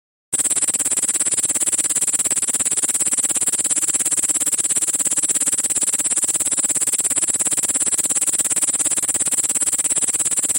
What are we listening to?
Tettigonia cantans, an orthopteran